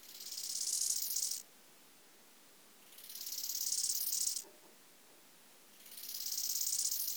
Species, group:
Chorthippus eisentrauti
Orthoptera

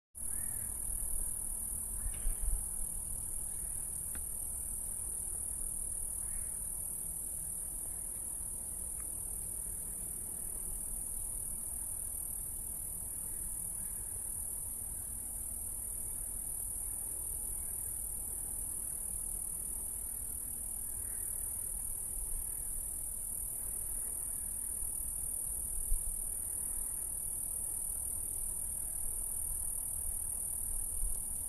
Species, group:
Okanagana occidentalis
Cicadidae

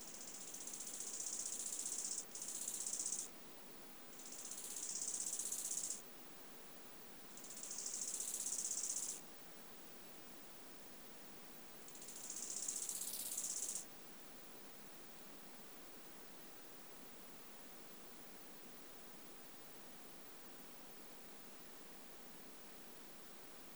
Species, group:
Chorthippus biguttulus
Orthoptera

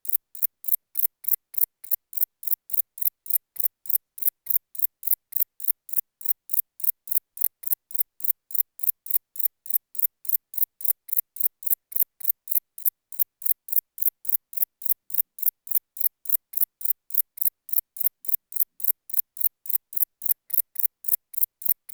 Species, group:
Decticus verrucivorus
Orthoptera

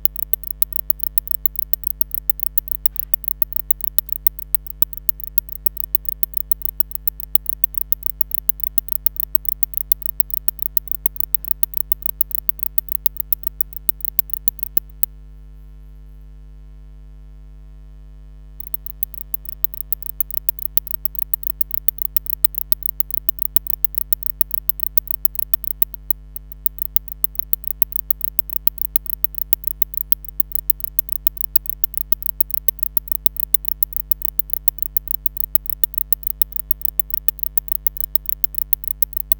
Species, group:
Barbitistes kaltenbachi
Orthoptera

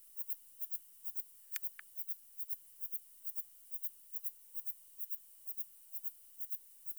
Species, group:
Platycleis intermedia
Orthoptera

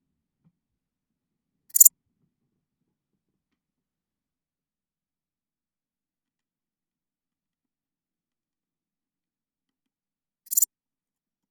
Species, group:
Pholidoptera transsylvanica
Orthoptera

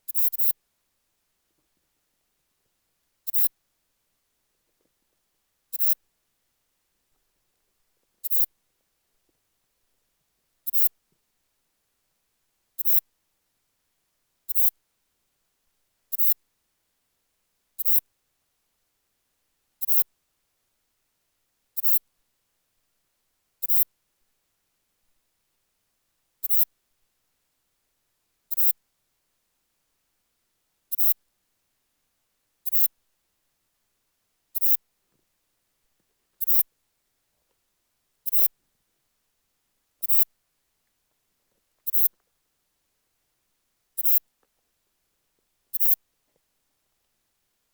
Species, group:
Ephippiger ephippiger
Orthoptera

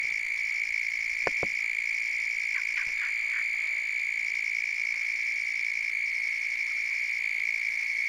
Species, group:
Gryllotalpa africana
Orthoptera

